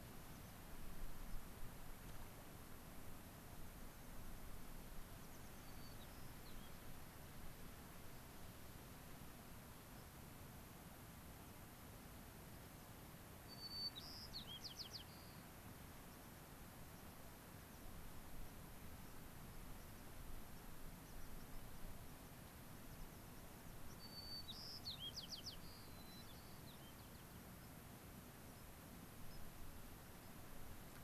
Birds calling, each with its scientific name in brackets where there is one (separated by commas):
White-crowned Sparrow (Zonotrichia leucophrys), American Pipit (Anthus rubescens)